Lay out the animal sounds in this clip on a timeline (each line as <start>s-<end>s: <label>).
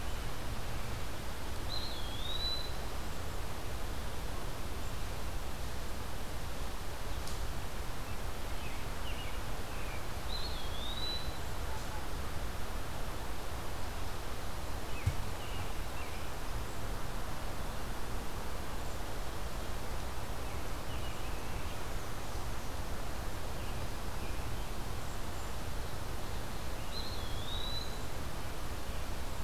1.5s-2.8s: Eastern Wood-Pewee (Contopus virens)
8.4s-10.2s: American Robin (Turdus migratorius)
10.1s-11.4s: Eastern Wood-Pewee (Contopus virens)
14.8s-16.2s: American Robin (Turdus migratorius)
20.2s-21.7s: American Robin (Turdus migratorius)
26.8s-28.1s: Eastern Wood-Pewee (Contopus virens)